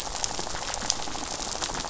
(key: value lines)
label: biophony, rattle
recorder: SoundTrap 500